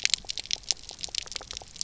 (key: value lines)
label: biophony, pulse
recorder: SoundTrap 300